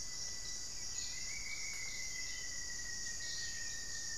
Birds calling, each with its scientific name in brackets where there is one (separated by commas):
Rufous-fronted Antthrush (Formicarius rufifrons)